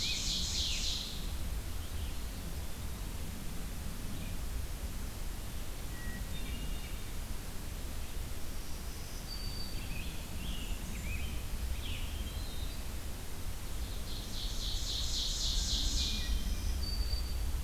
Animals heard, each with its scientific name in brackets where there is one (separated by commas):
Scarlet Tanager (Piranga olivacea), Ovenbird (Seiurus aurocapilla), Red-eyed Vireo (Vireo olivaceus), Hermit Thrush (Catharus guttatus), Black-throated Green Warbler (Setophaga virens), Eastern Wood-Pewee (Contopus virens), Blackburnian Warbler (Setophaga fusca)